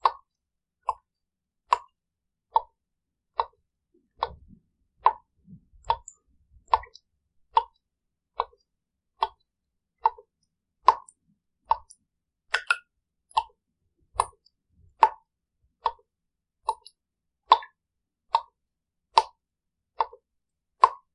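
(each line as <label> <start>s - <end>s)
Regular drops hitting a solid surface with dull thuds. 0.0s - 6.1s
Regular dropping sounds followed by a splash. 6.1s - 21.1s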